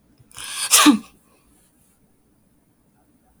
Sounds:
Sneeze